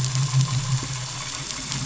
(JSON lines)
{"label": "anthrophony, boat engine", "recorder": "SoundTrap 500"}